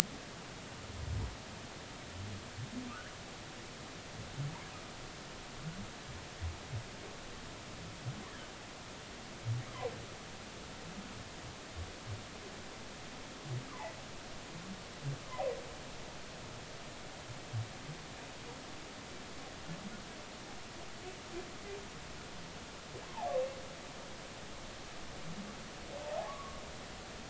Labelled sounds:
13.7	14.0	humpback whale, 0.80 to 2.1 kHz
23.0	23.3	humpback whale, 0.80 to 1.1 kHz
26.2	26.6	humpback whale, 0.99 to 1.2 kHz

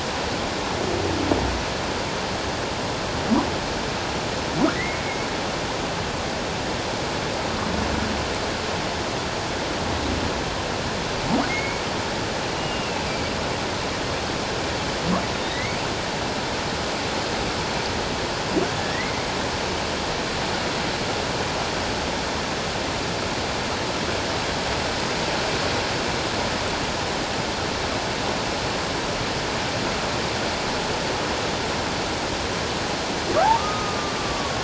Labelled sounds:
4.7	5.3	humpback whale, 1.8 to 2.3 kHz
11.5	13.0	humpback whale, 2.1 to 2.9 kHz
15.3	15.8	humpback whale, 1.8 to 3.8 kHz
18.9	19.2	humpback whale, 1.8 to 2.2 kHz
33.5	34.6	humpback whale, 1.0 to 1.3 kHz

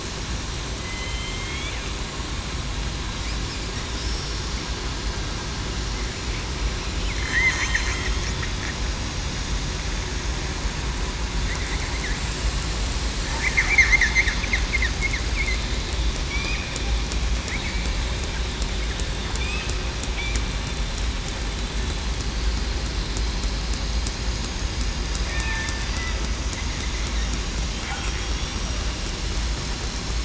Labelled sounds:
0.8	1.7	killer whale, southern resident, 3.0 to 3.6 kHz
7.1	7.5	killer whale, southern resident, 3.1 to 3.2 kHz
7.9	8.2	killer whale, southern resident, 3.2 to 3.3 kHz
25.3	25.8	killer whale, southern resident, 1.8 to 1.9 kHz
28.2	28.6	killer whale, southern resident, 3.3 to 3.6 kHz

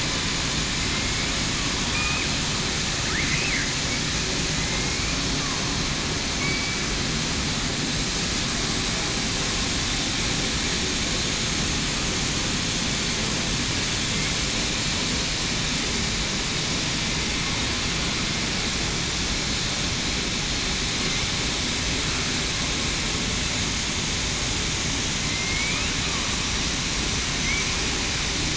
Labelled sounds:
0.9	1.3	killer whale, southern resident, 2.1 to 2.3 kHz
6.4	6.8	killer whale, southern resident, 2.2 to 2.3 kHz
25.2	25.8	killer whale, southern resident, 2.0 to 2.5 kHz

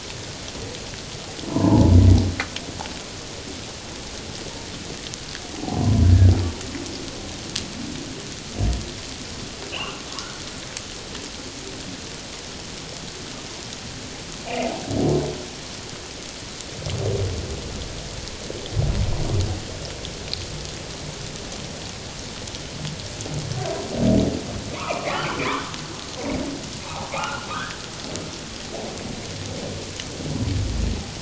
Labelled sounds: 1.5	1.9	humpback whale, 0.81 to 1.1 kHz
5.8	6.1	humpback whale, 0.94 to 1.1 kHz
9.7	10.0	humpback whale, 2.4 to 3.1 kHz
24.7	25.2	humpback whale, 0.91 to 2.8 kHz
26.9	27.8	humpback whale, 0.78 to 1.8 kHz

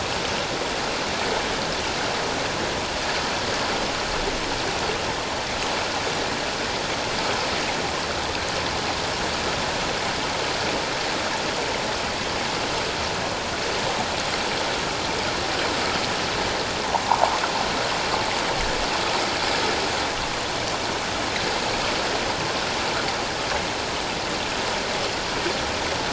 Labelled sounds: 17.0	17.3	sound from a nearby beach, 0.78 to 1.1 kHz

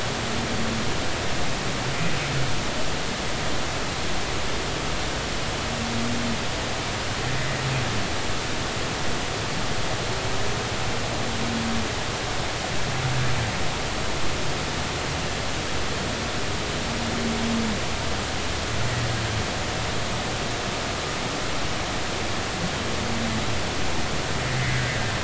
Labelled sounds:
24.6	24.9	humpback whale, 1.5 to 2.1 kHz

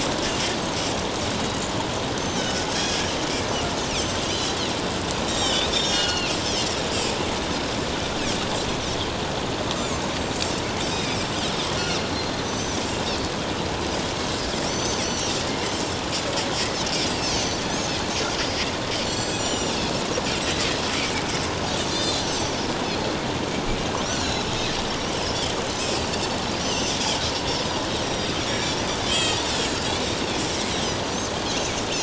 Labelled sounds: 2.4	3.1	Pacific white-sided dolphin, 1.4 to 3.5 kHz
4.2	4.5	Pacific white-sided dolphin, 2.8 to 3.2 kHz
5.2	7.1	Pacific white-sided dolphin, 1.4 to 7.6 kHz
9.8	11.2	Pacific white-sided dolphin, 2.3 to 7.4 kHz
11.8	12.8	Pacific white-sided dolphin, 5.5 to 6.2 kHz
14.7	16.0	Pacific white-sided dolphin, 2.8 to 6.4 kHz
17.2	17.9	Pacific white-sided dolphin, 4.2 to 7.0 kHz
19.0	19.8	Pacific white-sided dolphin, 2.8 to 7.8 kHz
20.9	21.2	Pacific white-sided dolphin, 2.1 to 2.5 kHz
21.9	22.6	Pacific white-sided dolphin, 3.5 to 7.3 kHz
24.0	24.5	Pacific white-sided dolphin, 3.9 to 7.5 kHz
26.6	29.8	Pacific white-sided dolphin, 1.8 to 7.9 kHz

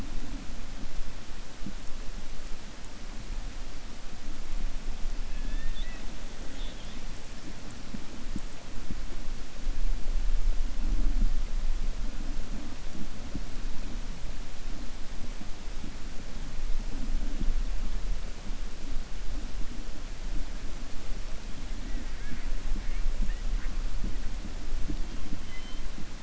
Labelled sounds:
5.3	6.1	killer whale, 1.7 to 4.0 kHz

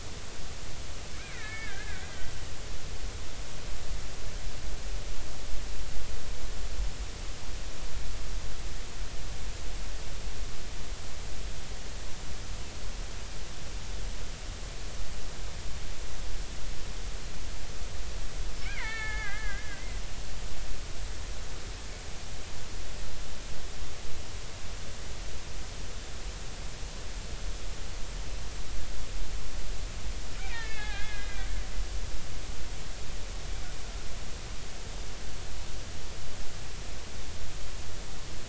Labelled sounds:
1.1	2.4	killer whale, Bigg's (transient), 1.2 to 2.6 kHz
18.6	20.0	killer whale, Bigg's (transient), 0.80 to 4.5 kHz
30.5	31.5	killer whale, Bigg's (transient), 0.80 to 2.7 kHz

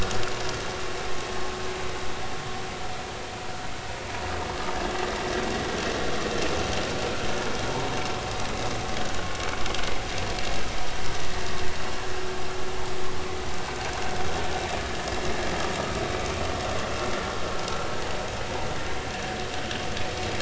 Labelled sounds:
11.2	11.4	vessel noise, 1.8 to 2.0 kHz

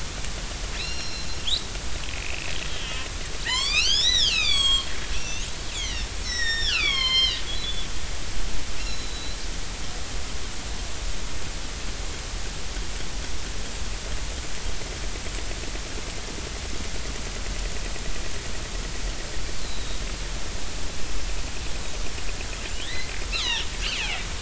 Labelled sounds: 0.8	5.5	killer whale, northern resident, 0.86 to 8.0 kHz
5.7	7.9	killer whale, northern resident, 0.99 to 7.4 kHz
8.8	9.4	killer whale, northern resident, 3.9 to 5.6 kHz
19.6	20.0	killer whale, northern resident, 3.7 to 4.3 kHz
22.8	24.3	killer whale, northern resident, 0.83 to 6.3 kHz

